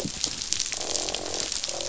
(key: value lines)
label: biophony, croak
recorder: SoundTrap 500